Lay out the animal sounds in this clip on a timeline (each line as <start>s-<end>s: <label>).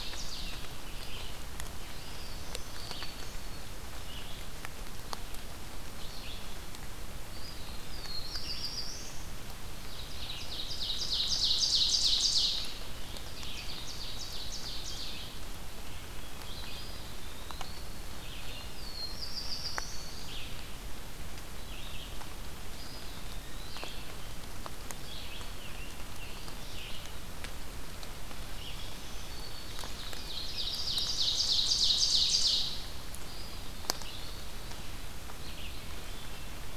0.0s-1.0s: Ovenbird (Seiurus aurocapilla)
0.0s-36.8s: Red-eyed Vireo (Vireo olivaceus)
1.8s-2.8s: Eastern Wood-Pewee (Contopus virens)
1.9s-3.7s: Black-throated Green Warbler (Setophaga virens)
7.8s-9.3s: Black-throated Blue Warbler (Setophaga caerulescens)
10.3s-15.4s: Ovenbird (Seiurus aurocapilla)
16.4s-18.0s: Eastern Wood-Pewee (Contopus virens)
18.6s-20.3s: Black-throated Blue Warbler (Setophaga caerulescens)
19.2s-20.4s: Black-throated Green Warbler (Setophaga virens)
22.6s-24.1s: Eastern Wood-Pewee (Contopus virens)
24.8s-25.8s: Black-throated Green Warbler (Setophaga virens)
28.5s-30.0s: Black-throated Green Warbler (Setophaga virens)
30.3s-33.0s: Ovenbird (Seiurus aurocapilla)
33.2s-34.5s: Eastern Wood-Pewee (Contopus virens)